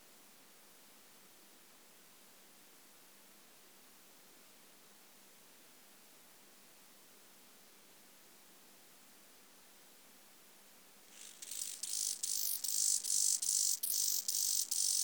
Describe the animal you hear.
Chorthippus mollis, an orthopteran